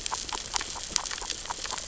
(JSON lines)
{"label": "biophony, grazing", "recorder": "SoundTrap 600 or HydroMoth"}